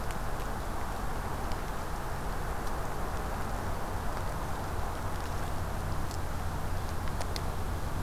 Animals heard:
forest ambience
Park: Acadia National Park